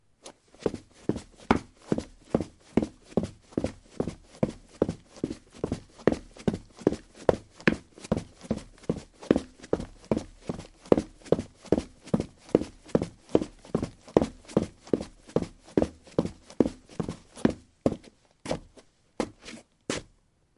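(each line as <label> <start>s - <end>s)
Running footsteps on pavement tiles, consistent and moderately loud. 0.5s - 17.9s
Running footsteps gradually become softer. 18.4s - 20.4s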